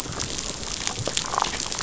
{"label": "biophony, damselfish", "recorder": "SoundTrap 500"}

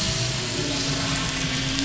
{"label": "anthrophony, boat engine", "recorder": "SoundTrap 500"}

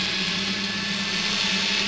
{"label": "anthrophony, boat engine", "recorder": "SoundTrap 500"}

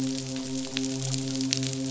{"label": "biophony, midshipman", "recorder": "SoundTrap 500"}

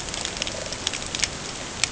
{"label": "ambient", "recorder": "HydroMoth"}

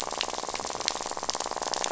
{"label": "biophony, rattle", "recorder": "SoundTrap 500"}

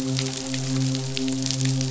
{"label": "biophony, midshipman", "recorder": "SoundTrap 500"}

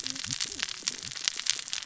{"label": "biophony, cascading saw", "recorder": "SoundTrap 600 or HydroMoth"}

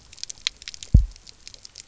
{"label": "biophony, double pulse", "recorder": "SoundTrap 300"}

